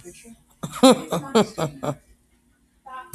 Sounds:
Laughter